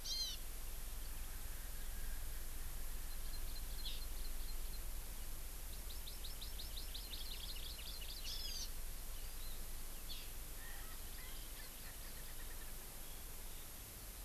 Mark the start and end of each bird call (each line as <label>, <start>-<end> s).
Hawaii Amakihi (Chlorodrepanis virens), 0.0-0.4 s
Hawaii Amakihi (Chlorodrepanis virens), 3.0-4.8 s
Hawaii Amakihi (Chlorodrepanis virens), 5.7-8.7 s
Hawaii Amakihi (Chlorodrepanis virens), 9.2-9.6 s
Hawaii Amakihi (Chlorodrepanis virens), 10.1-10.2 s
Erckel's Francolin (Pternistis erckelii), 10.5-12.7 s
Hawaii Amakihi (Chlorodrepanis virens), 10.9-12.4 s